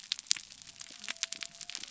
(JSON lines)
{"label": "biophony", "recorder": "SoundTrap 300"}